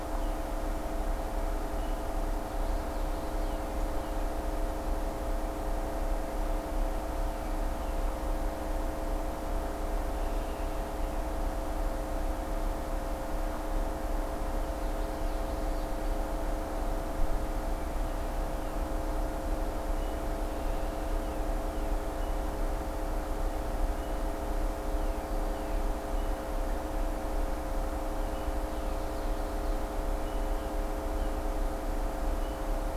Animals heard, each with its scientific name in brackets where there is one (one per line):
Common Yellowthroat (Geothlypis trichas)
American Robin (Turdus migratorius)